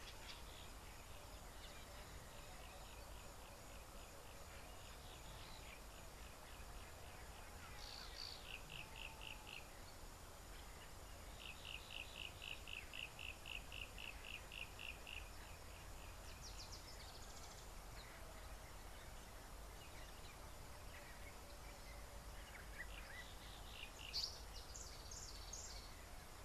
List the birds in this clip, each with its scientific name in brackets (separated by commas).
Yellow-breasted Apalis (Apalis flavida), African Paradise-Flycatcher (Terpsiphone viridis)